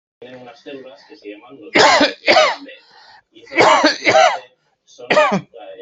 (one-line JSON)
{"expert_labels": [{"quality": "ok", "cough_type": "dry", "dyspnea": false, "wheezing": false, "stridor": false, "choking": false, "congestion": false, "nothing": true, "diagnosis": "COVID-19", "severity": "mild"}], "age": 50, "gender": "male", "respiratory_condition": false, "fever_muscle_pain": false, "status": "COVID-19"}